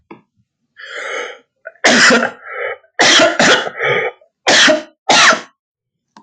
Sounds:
Cough